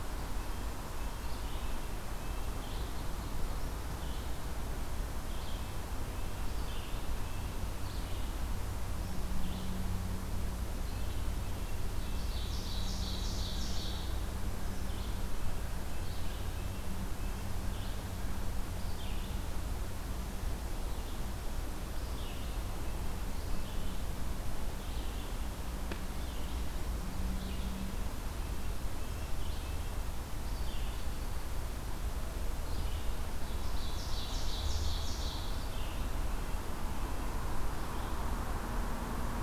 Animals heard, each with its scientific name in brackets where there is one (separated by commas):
Red-eyed Vireo (Vireo olivaceus), Ovenbird (Seiurus aurocapilla), Red-breasted Nuthatch (Sitta canadensis)